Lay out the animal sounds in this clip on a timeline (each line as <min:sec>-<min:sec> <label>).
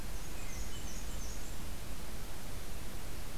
0:00.0-0:01.6 Black-and-white Warbler (Mniotilta varia)